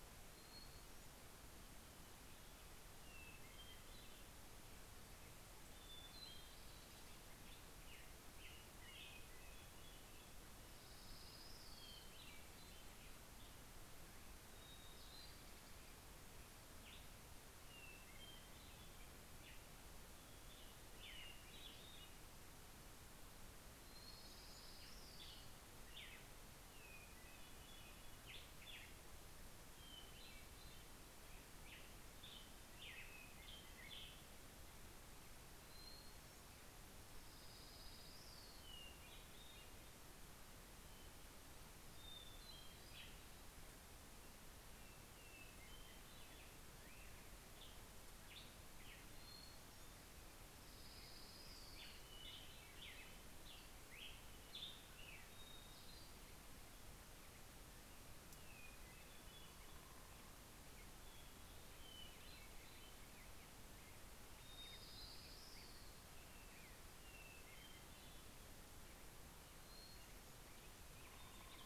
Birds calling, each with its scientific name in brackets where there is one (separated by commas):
Hermit Thrush (Catharus guttatus), Orange-crowned Warbler (Leiothlypis celata), Black-headed Grosbeak (Pheucticus melanocephalus)